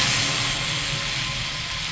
{"label": "anthrophony, boat engine", "recorder": "SoundTrap 500"}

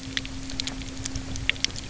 {"label": "anthrophony, boat engine", "recorder": "SoundTrap 300"}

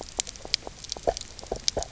{"label": "biophony, knock croak", "recorder": "SoundTrap 300"}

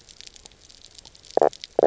{"label": "biophony, knock croak", "recorder": "SoundTrap 300"}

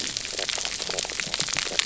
{"label": "biophony, knock croak", "recorder": "SoundTrap 300"}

